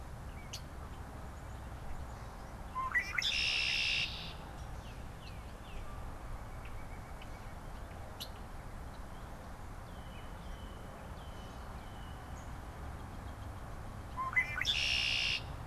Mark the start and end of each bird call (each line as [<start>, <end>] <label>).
[0.50, 0.70] Red-winged Blackbird (Agelaius phoeniceus)
[2.60, 4.40] Red-winged Blackbird (Agelaius phoeniceus)
[4.60, 6.20] Tufted Titmouse (Baeolophus bicolor)
[5.80, 7.70] White-breasted Nuthatch (Sitta carolinensis)
[6.50, 7.40] Red-winged Blackbird (Agelaius phoeniceus)
[8.00, 8.50] Red-winged Blackbird (Agelaius phoeniceus)
[9.70, 12.40] Red-winged Blackbird (Agelaius phoeniceus)
[14.00, 15.60] Red-winged Blackbird (Agelaius phoeniceus)